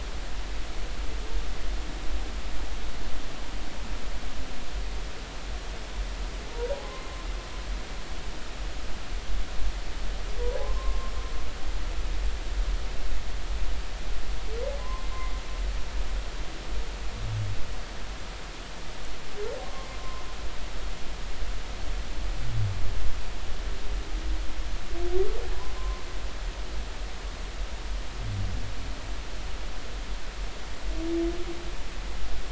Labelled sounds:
6.5	7.3	humpback whale, 0.90 to 1.1 kHz
10.6	11.1	humpback whale, 0.90 to 1.1 kHz
14.8	15.1	humpback whale, 0.96 to 1.1 kHz
20.0	20.2	humpback whale, 0.96 to 1.1 kHz
25.8	26.0	humpback whale, 0.99 to 1.1 kHz

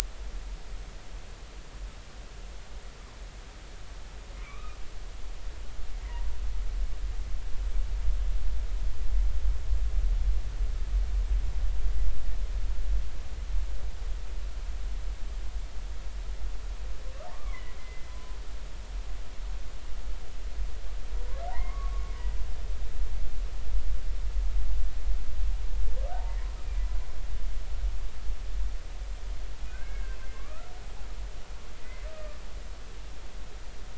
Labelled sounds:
4.4	4.8	humpback whale, 1.0 to 2.6 kHz
6.0	6.2	humpback whale, 1.8 to 2.1 kHz
17.3	18.3	humpback whale, 0.96 to 2.3 kHz
21.5	22.1	humpback whale, 0.80 to 2.2 kHz
26.1	26.4	humpback whale, 0.80 to 0.96 kHz
29.7	30.7	humpback whale, 1.0 to 2.2 kHz
32.1	32.4	humpback whale, 1.2 to 1.3 kHz

